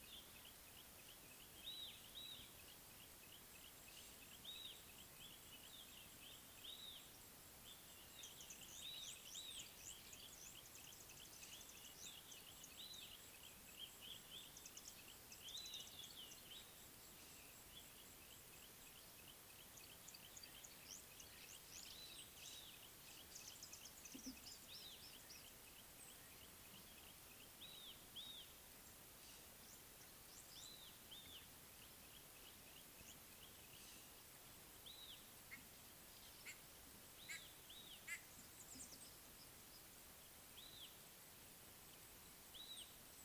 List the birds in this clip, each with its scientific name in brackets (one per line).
White-bellied Go-away-bird (Corythaixoides leucogaster)
Red-backed Scrub-Robin (Cercotrichas leucophrys)
Red-fronted Prinia (Prinia rufifrons)